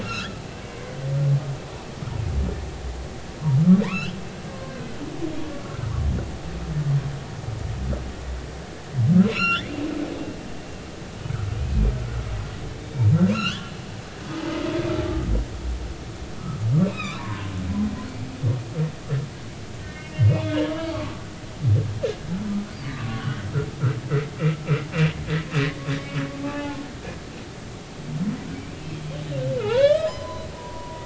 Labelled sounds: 0.0	0.9	humpback whale, 1.2 to 2.9 kHz
3.8	4.2	humpback whale, 0.90 to 3.4 kHz
9.3	9.8	humpback whale, 1.3 to 5.8 kHz
11.5	11.8	humpback whale, 2.4 to 2.6 kHz
13.3	13.8	humpback whale, 1.0 to 3.6 kHz
16.9	17.5	humpback whale, 0.90 to 3.9 kHz
19.8	21.3	humpback whale, 1.0 to 5.3 kHz
22.9	23.4	humpback whale, 1.1 to 1.6 kHz
25.9	26.8	humpback whale, 0.80 to 3.7 kHz
29.6	31.0	humpback whale, 0.80 to 6.1 kHz

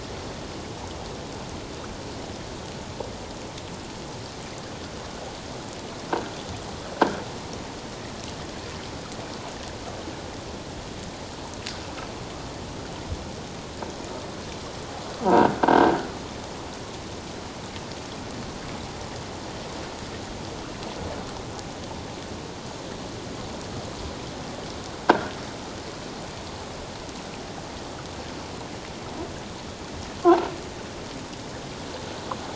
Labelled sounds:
15.2	16.0	croaking sound likely from a nearby submerged object, 0.78 to 1.7 kHz
25.1	25.3	croaking sound likely from a nearby submerged object, 1.3 to 1.7 kHz

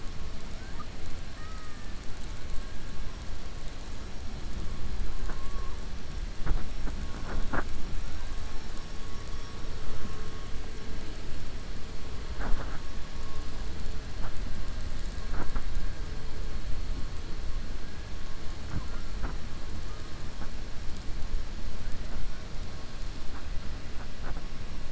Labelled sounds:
1.3	1.9	killer whale, 1.2 to 2.0 kHz
9.1	9.6	killer whale, 4.9 to 6.4 kHz

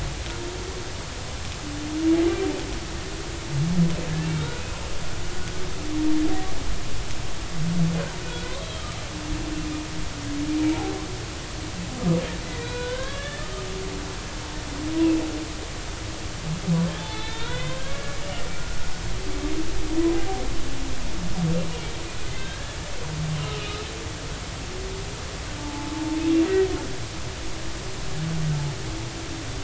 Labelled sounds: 4.3	4.8	humpback whale, 1.3 to 3.9 kHz
8.2	8.9	humpback whale, 1.4 to 3.3 kHz
12.4	13.6	humpback whale, 0.93 to 4.0 kHz
15.0	15.2	humpback whale, 2.5 to 2.8 kHz
16.9	17.8	humpback whale, 0.83 to 4.1 kHz
22.3	22.8	humpback whale, 1.5 to 3.8 kHz
23.4	23.8	humpback whale, 1.2 to 3.0 kHz
25.6	25.9	humpback whale, 0.83 to 0.93 kHz

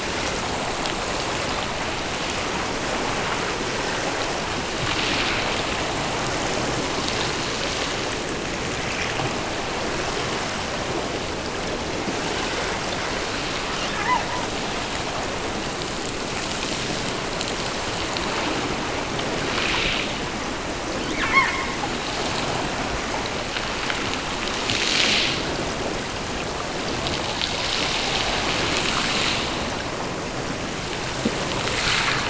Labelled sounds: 20.9	22.0	killer whale, offshore, 0.64 to 4.4 kHz

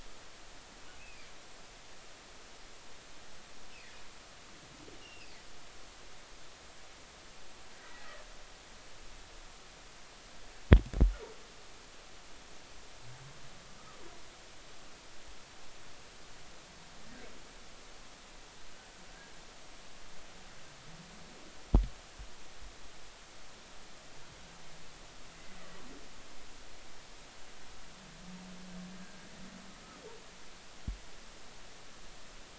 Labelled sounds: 1.0	1.3	humpback whale, 2.2 to 2.7 kHz
5.0	5.4	humpback whale, 2.5 to 5.3 kHz
7.7	8.2	humpback whale, 1.7 to 2.0 kHz

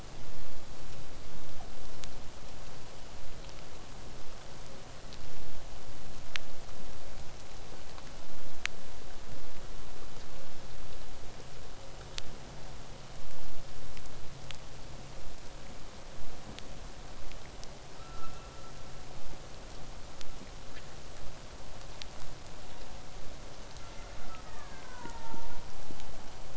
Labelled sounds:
22.6	23.0	killer whale, southern resident, 2.5 to 4.0 kHz
23.7	25.8	killer whale, southern resident, 0.70 to 3.1 kHz

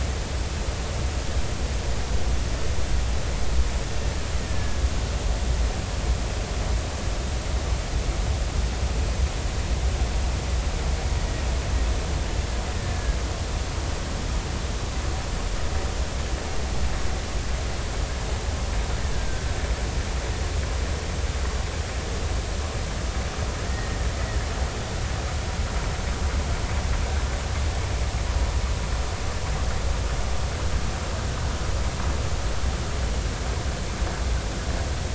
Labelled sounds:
4.4	4.8	killer whale, Bigg's (transient), 1.6 to 1.9 kHz
12.7	13.2	killer whale, Bigg's (transient), 1.6 to 1.9 kHz
19.1	19.5	killer whale, Bigg's (transient), 1.5 to 1.7 kHz
23.7	24.0	killer whale, Bigg's (transient), 1.8 to 2.0 kHz

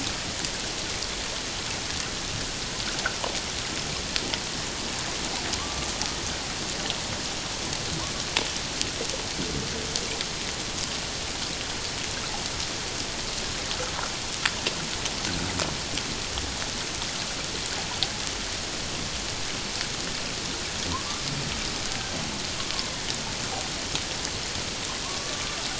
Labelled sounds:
5.6	5.9	killer whale, Bigg's (transient), 1.0 to 1.2 kHz
25.0	25.6	killer whale, Bigg's (transient), 0.91 to 1.2 kHz

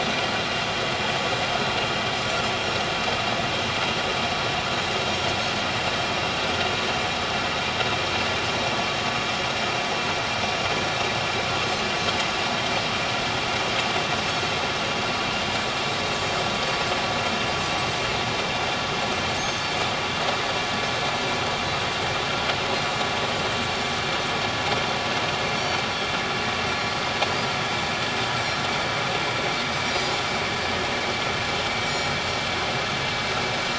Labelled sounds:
0.0	0.3	Pacific white-sided dolphin, 5.8 to 6.0 kHz
16.2	16.4	Pacific white-sided dolphin, 4.4 to 4.7 kHz
19.4	19.6	Pacific white-sided dolphin, 6.3 to 6.5 kHz
25.6	25.8	Pacific white-sided dolphin, 4.4 to 4.6 kHz
31.8	32.1	Pacific white-sided dolphin, 5.5 to 5.7 kHz

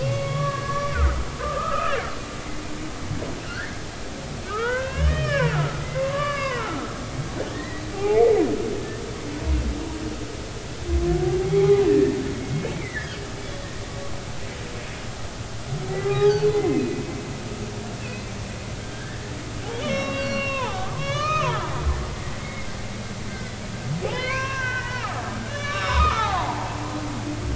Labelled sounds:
0.0	2.1	humpback whale, 0.99 to 3.5 kHz
3.4	3.8	humpback whale, 1.3 to 1.9 kHz
4.5	7.0	humpback whale, 0.90 to 3.2 kHz
7.5	8.3	humpback whale, 0.80 to 2.5 kHz
11.4	12.2	humpback whale, 0.80 to 1.9 kHz
12.7	13.7	humpback whale, 1.6 to 3.5 kHz
16.0	17.0	humpback whale, 0.80 to 5.2 kHz
18.9	19.2	humpback whale, 1.5 to 1.9 kHz
19.8	21.6	humpback whale, 0.80 to 6.1 kHz
23.3	26.7	humpback whale, 0.80 to 6.0 kHz

